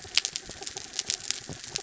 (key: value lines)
label: anthrophony, mechanical
recorder: SoundTrap 300